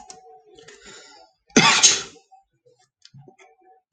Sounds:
Sneeze